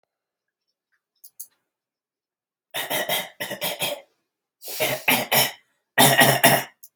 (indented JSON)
{
  "expert_labels": [
    {
      "quality": "good",
      "cough_type": "dry",
      "dyspnea": false,
      "wheezing": false,
      "stridor": false,
      "choking": false,
      "congestion": false,
      "nothing": true,
      "diagnosis": "healthy cough",
      "severity": "pseudocough/healthy cough"
    }
  ],
  "age": 37,
  "gender": "male",
  "respiratory_condition": false,
  "fever_muscle_pain": false,
  "status": "healthy"
}